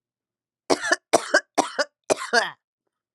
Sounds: Cough